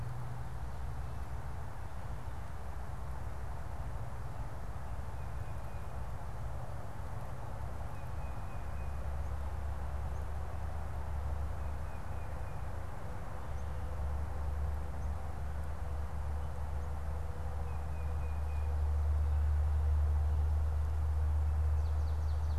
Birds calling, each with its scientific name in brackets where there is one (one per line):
Tufted Titmouse (Baeolophus bicolor)
unidentified bird